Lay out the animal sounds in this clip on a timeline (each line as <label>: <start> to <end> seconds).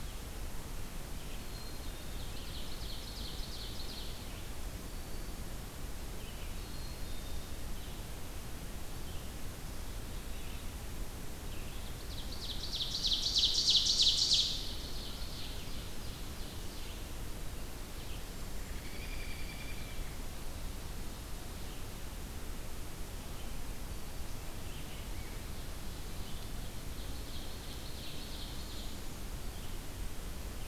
Black-capped Chickadee (Poecile atricapillus): 1.2 to 2.4 seconds
Ovenbird (Seiurus aurocapilla): 1.7 to 4.4 seconds
Black-capped Chickadee (Poecile atricapillus): 6.4 to 7.6 seconds
Ovenbird (Seiurus aurocapilla): 11.7 to 17.1 seconds
American Robin (Turdus migratorius): 18.6 to 20.2 seconds
Ovenbird (Seiurus aurocapilla): 27.3 to 29.1 seconds